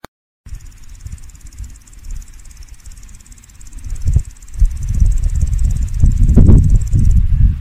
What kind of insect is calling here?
orthopteran